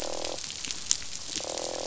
{"label": "biophony, croak", "recorder": "SoundTrap 500"}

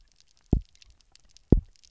{"label": "biophony, double pulse", "recorder": "SoundTrap 300"}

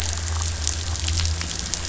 {"label": "anthrophony, boat engine", "recorder": "SoundTrap 500"}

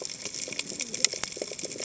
{"label": "biophony, cascading saw", "recorder": "HydroMoth"}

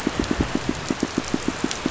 {"label": "biophony, pulse", "recorder": "SoundTrap 500"}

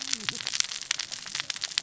{"label": "biophony, cascading saw", "recorder": "SoundTrap 600 or HydroMoth"}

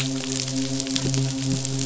{"label": "biophony, midshipman", "recorder": "SoundTrap 500"}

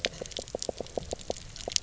{"label": "biophony, knock croak", "recorder": "SoundTrap 300"}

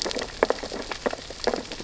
{"label": "biophony, sea urchins (Echinidae)", "recorder": "SoundTrap 600 or HydroMoth"}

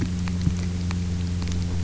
{"label": "anthrophony, boat engine", "recorder": "SoundTrap 300"}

